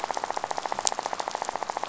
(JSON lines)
{"label": "biophony, rattle", "recorder": "SoundTrap 500"}